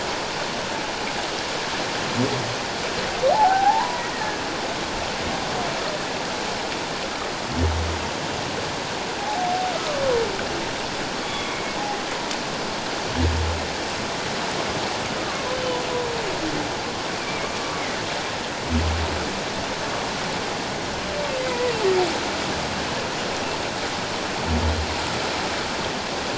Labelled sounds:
3.3	4.4	humpback whale, 0.78 to 1.9 kHz
9.2	10.0	humpback whale, 0.78 to 1.3 kHz
11.2	11.8	humpback whale, 2.1 to 3.5 kHz
17.2	17.5	humpback whale, 2.1 to 2.5 kHz
21.4	21.7	humpback whale, 1.9 to 2.1 kHz

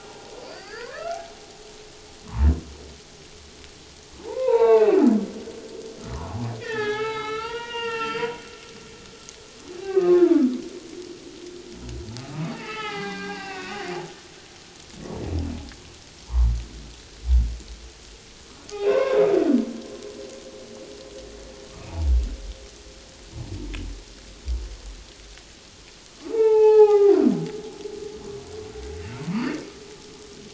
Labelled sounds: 4.2	5.0	humpback whale, 0.78 to 4.0 kHz
6.6	8.3	humpback whale, 0.78 to 4.9 kHz
9.8	10.4	humpback whale, 0.84 to 1.6 kHz
12.2	13.8	humpback whale, 0.78 to 3.1 kHz
18.7	19.2	humpback whale, 0.91 to 3.8 kHz
21.9	22.1	humpback whale, 0.81 to 0.97 kHz
26.2	27.2	humpback whale, 0.78 to 3.1 kHz
29.2	29.5	humpback whale, 0.91 to 1.3 kHz

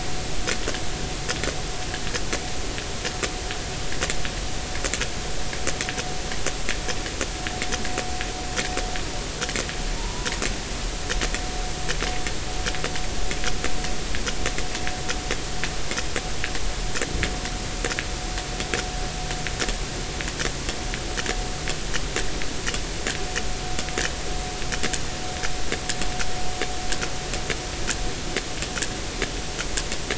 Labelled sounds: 10.0	10.3	humpback whale, 0.83 to 1.0 kHz

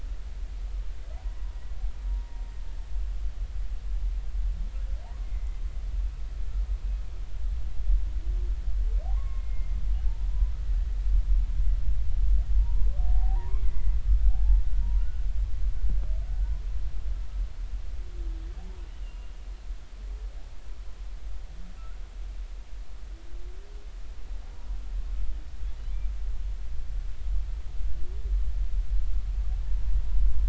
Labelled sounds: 2.1	2.4	humpback whale, 0.90 to 0.96 kHz
5.2	5.6	humpback whale, 2.0 to 2.2 kHz
9.1	9.8	humpback whale, 0.80 to 2.2 kHz
12.5	13.9	humpback whale, 0.80 to 2.1 kHz
14.3	15.3	humpback whale, 0.80 to 1.5 kHz
18.6	19.4	humpback whale, 0.80 to 2.9 kHz

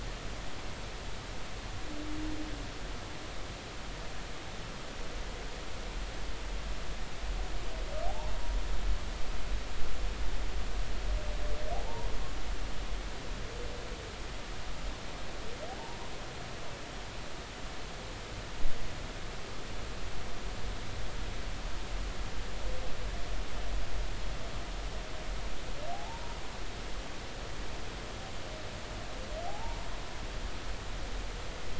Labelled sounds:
8.1	8.3	humpback whale, 0.80 to 1.1 kHz
11.7	12.1	humpback whale, 0.80 to 1.1 kHz
25.9	26.4	humpback whale, 0.80 to 0.99 kHz
29.5	29.9	humpback whale, 0.80 to 0.99 kHz

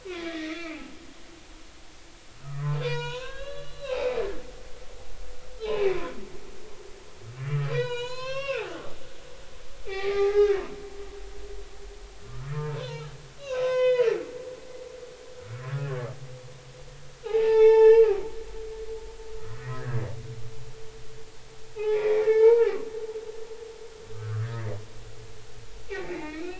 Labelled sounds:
0.1	0.8	humpback whale, 1.1 to 3.5 kHz
2.4	4.2	humpback whale, 0.90 to 6.8 kHz
5.6	6.1	humpback whale, 0.80 to 2.7 kHz
7.5	8.8	humpback whale, 0.90 to 7.2 kHz
9.8	10.6	humpback whale, 0.80 to 3.8 kHz
12.3	13.1	humpback whale, 0.80 to 1.6 kHz
13.4	14.1	humpback whale, 0.96 to 4.6 kHz
15.5	16.1	humpback whale, 1.0 to 1.9 kHz
17.2	18.2	humpback whale, 0.80 to 5.8 kHz
19.5	19.8	humpback whale, 1.8 to 2.0 kHz
21.8	22.7	humpback whale, 0.80 to 2.5 kHz
24.1	24.8	humpback whale, 1.1 to 2.1 kHz
25.9	26.5	humpback whale, 1.8 to 2.9 kHz

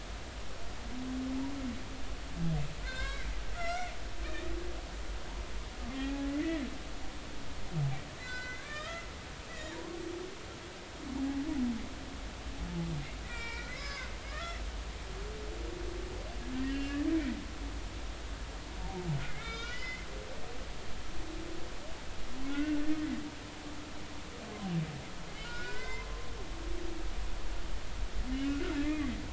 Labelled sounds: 2.8	3.9	humpback whale, 0.99 to 5.9 kHz
5.9	6.6	humpback whale, 0.80 to 2.6 kHz
8.2	9.1	humpback whale, 1.1 to 7.6 kHz
9.5	10.0	humpback whale, 0.86 to 2.0 kHz
11.1	11.4	humpback whale, 0.80 to 0.96 kHz
13.2	14.6	humpback whale, 0.99 to 5.2 kHz
16.5	17.1	humpback whale, 1.6 to 2.9 kHz
19.3	20.1	humpback whale, 1.3 to 3.8 kHz
22.5	22.9	humpback whale, 1.4 to 1.6 kHz
25.4	26.1	humpback whale, 0.86 to 5.2 kHz
28.3	29.1	humpback whale, 1.3 to 2.3 kHz

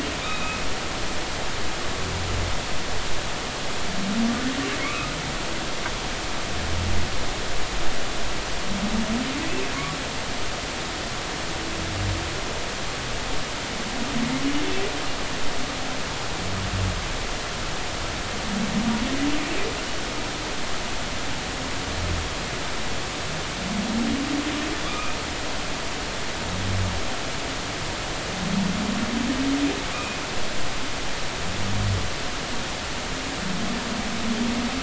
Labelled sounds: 0.2	0.6	humpback whale, 2.3 to 3.9 kHz
4.8	5.1	humpback whale, 1.1 to 2.6 kHz
24.9	25.2	humpback whale, 1.1 to 2.6 kHz
29.9	30.2	humpback whale, 2.3 to 2.6 kHz

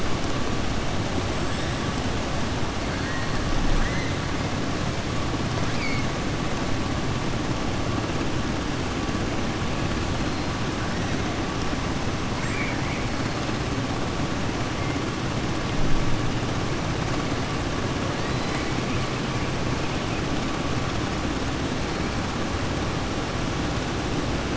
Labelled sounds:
2.9	3.3	killer whale, southern resident, 1.0 to 2.2 kHz
12.3	13.0	killer whale, southern resident, 1.6 to 2.6 kHz
18.2	18.7	killer whale, southern resident, 1.9 to 5.0 kHz

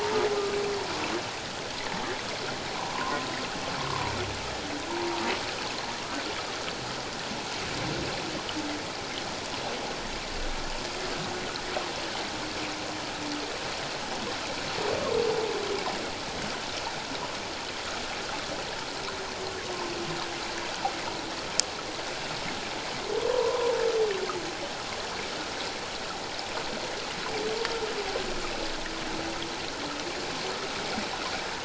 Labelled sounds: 2.9	3.2	humpback whale, 0.94 to 1.2 kHz
3.8	4.1	humpback whale, 0.91 to 1.3 kHz
4.9	5.2	humpback whale, 0.84 to 1.0 kHz
23.3	23.7	humpback whale, 0.88 to 1.1 kHz

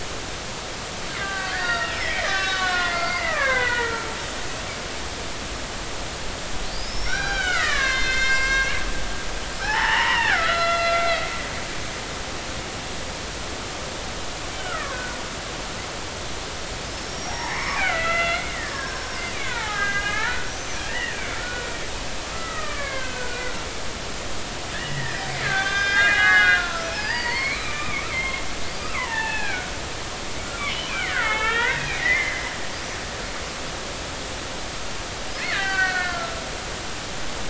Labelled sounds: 1.2	4.1	killer whale, Bigg's (transient), 0.90 to 5.5 kHz
6.7	11.2	killer whale, Bigg's (transient), 0.80 to 7.5 kHz
14.5	15.2	killer whale, Bigg's (transient), 0.99 to 3.1 kHz
16.9	21.7	killer whale, Bigg's (transient), 0.80 to 6.3 kHz
22.3	23.6	killer whale, Bigg's (transient), 0.99 to 2.5 kHz
24.7	29.7	killer whale, Bigg's (transient), 0.80 to 5.3 kHz
30.9	32.5	killer whale, Bigg's (transient), 0.83 to 3.6 kHz
35.4	37.2	killer whale, Bigg's (transient), 1.3 to 6.2 kHz

